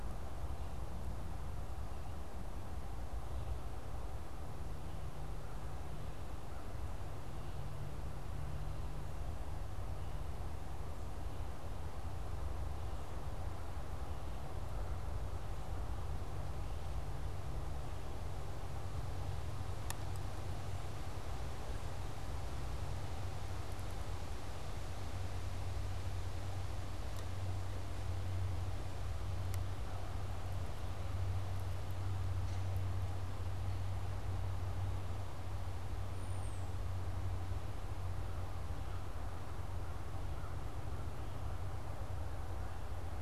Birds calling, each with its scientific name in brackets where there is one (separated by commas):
unidentified bird, American Crow (Corvus brachyrhynchos)